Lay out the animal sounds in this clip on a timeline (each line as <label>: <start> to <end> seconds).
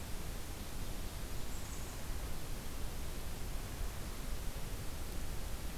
Blackburnian Warbler (Setophaga fusca): 1.1 to 2.0 seconds